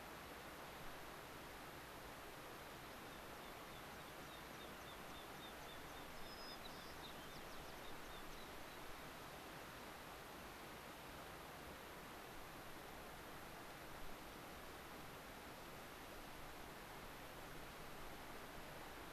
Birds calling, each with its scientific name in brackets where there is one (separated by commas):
American Pipit (Anthus rubescens), White-crowned Sparrow (Zonotrichia leucophrys)